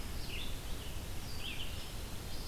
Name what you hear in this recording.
Red-eyed Vireo